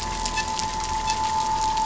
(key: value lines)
label: anthrophony, boat engine
recorder: SoundTrap 500